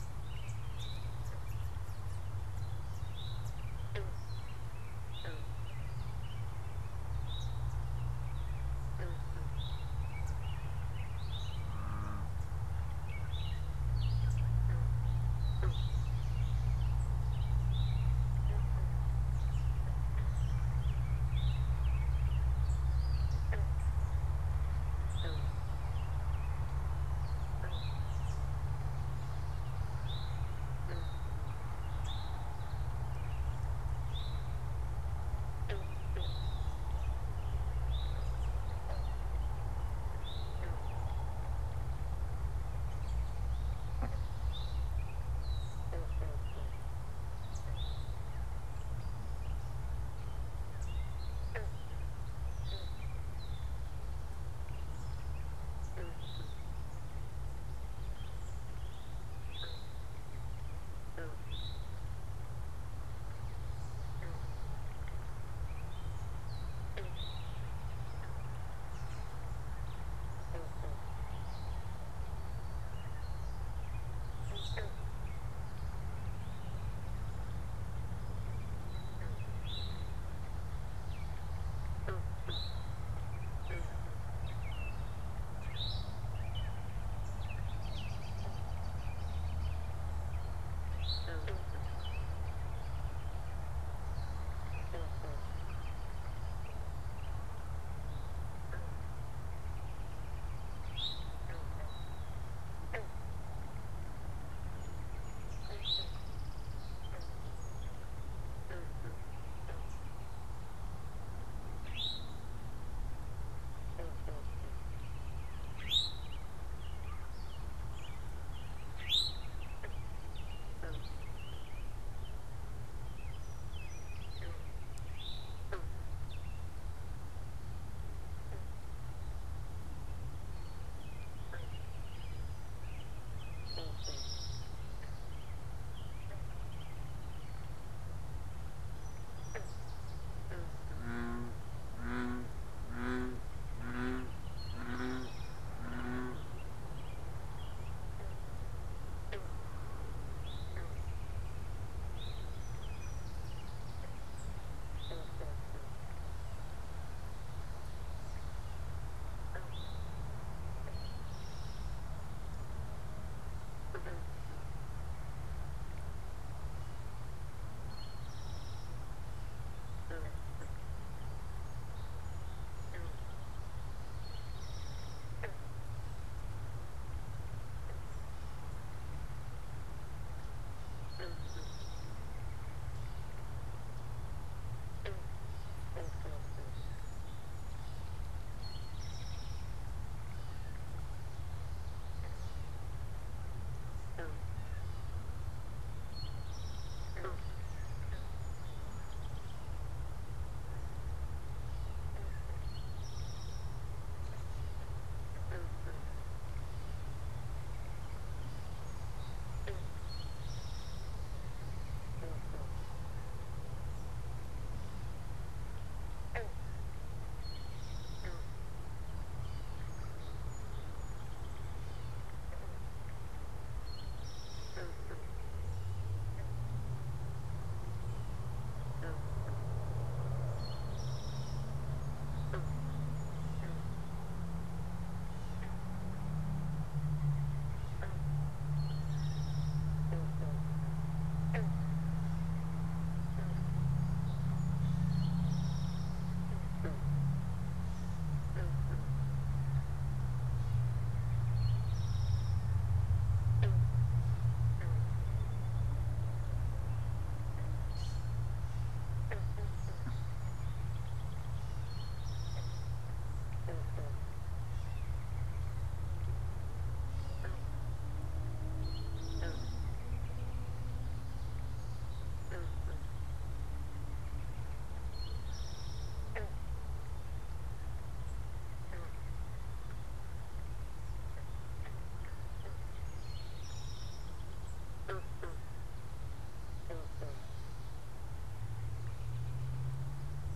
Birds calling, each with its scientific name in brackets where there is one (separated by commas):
Eastern Towhee (Pipilo erythrophthalmus), Red-winged Blackbird (Agelaius phoeniceus), Song Sparrow (Melospiza melodia), unidentified bird, Blue Jay (Cyanocitta cristata), American Robin (Turdus migratorius), Common Yellowthroat (Geothlypis trichas), Gray Catbird (Dumetella carolinensis)